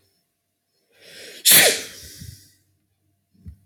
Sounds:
Sneeze